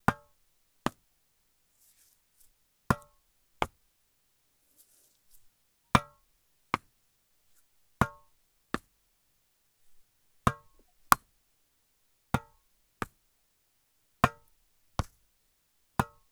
Is there a large spectator crowd watching?
no